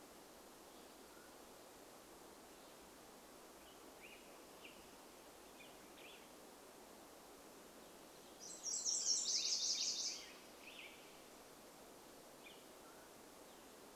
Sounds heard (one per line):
Mountain Quail call
Nashville Warbler song
Black-headed Grosbeak song
warbler song